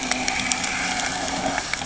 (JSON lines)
{"label": "anthrophony, boat engine", "recorder": "HydroMoth"}